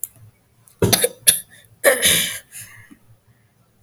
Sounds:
Throat clearing